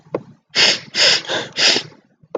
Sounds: Sniff